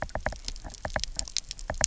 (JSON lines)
{"label": "biophony, knock", "recorder": "SoundTrap 300"}